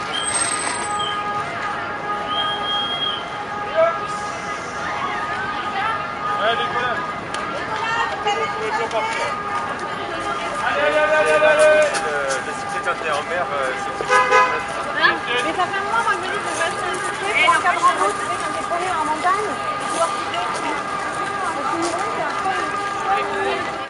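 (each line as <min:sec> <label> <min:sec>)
0:00.0 The loud atmosphere of a city. 0:03.3
0:03.7 People are having muffled conversations in a crowded outdoor place. 0:14.1
0:14.1 A car horn honks twice loudly in the distance. 0:14.7
0:14.7 People are having muffled conversations in a crowded outdoor place. 0:23.9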